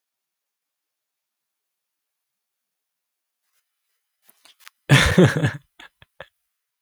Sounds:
Laughter